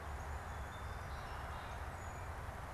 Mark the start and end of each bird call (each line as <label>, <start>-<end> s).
Song Sparrow (Melospiza melodia), 0.0-2.7 s